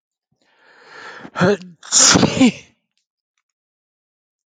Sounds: Sneeze